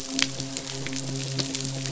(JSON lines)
{"label": "biophony, midshipman", "recorder": "SoundTrap 500"}